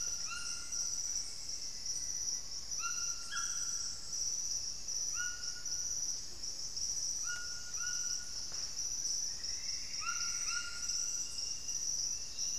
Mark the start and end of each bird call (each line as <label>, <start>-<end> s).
White-throated Toucan (Ramphastos tucanus), 0.0-12.6 s
Black-faced Antthrush (Formicarius analis), 0.3-2.4 s
Plumbeous Antbird (Myrmelastes hyperythrus), 8.9-11.0 s
unidentified bird, 11.5-12.6 s